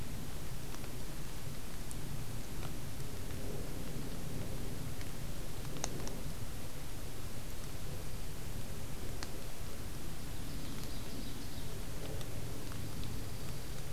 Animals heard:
Dark-eyed Junco (Junco hyemalis)
Ovenbird (Seiurus aurocapilla)

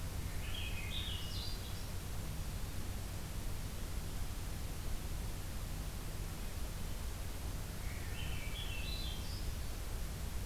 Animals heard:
Swainson's Thrush (Catharus ustulatus)

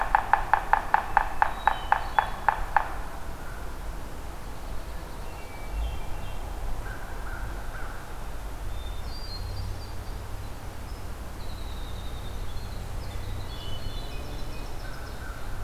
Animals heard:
Hermit Thrush (Catharus guttatus)
Winter Wren (Troglodytes hiemalis)
Pine Warbler (Setophaga pinus)
American Crow (Corvus brachyrhynchos)
Yellow-bellied Sapsucker (Sphyrapicus varius)

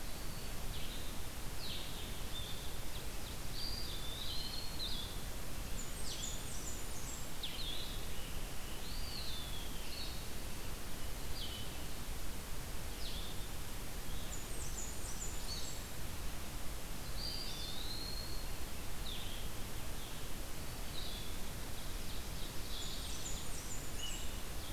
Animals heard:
Red-eyed Vireo (Vireo olivaceus)
Eastern Wood-Pewee (Contopus virens)
Ovenbird (Seiurus aurocapilla)
Blue-headed Vireo (Vireo solitarius)
Blackburnian Warbler (Setophaga fusca)

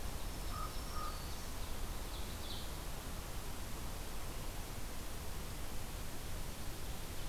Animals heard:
Black-throated Green Warbler (Setophaga virens)
Common Raven (Corvus corax)
Ovenbird (Seiurus aurocapilla)

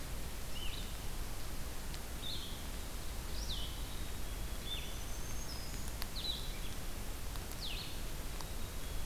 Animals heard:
Blue-headed Vireo (Vireo solitarius)
Black-throated Green Warbler (Setophaga virens)

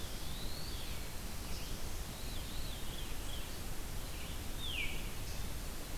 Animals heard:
Veery (Catharus fuscescens)
Eastern Wood-Pewee (Contopus virens)
Red-eyed Vireo (Vireo olivaceus)

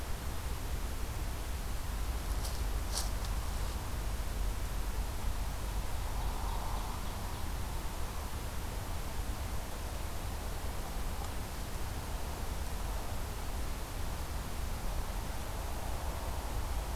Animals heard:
Ovenbird (Seiurus aurocapilla)

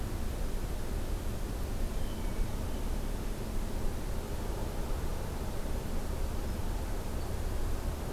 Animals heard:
Hermit Thrush (Catharus guttatus)

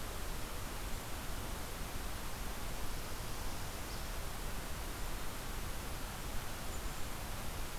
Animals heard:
Northern Parula (Setophaga americana)

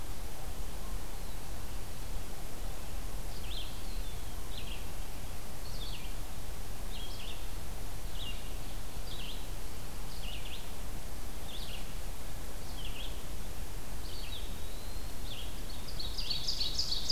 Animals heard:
Ovenbird (Seiurus aurocapilla)
Red-eyed Vireo (Vireo olivaceus)
Eastern Wood-Pewee (Contopus virens)

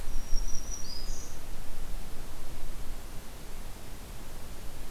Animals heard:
Black-throated Green Warbler (Setophaga virens)

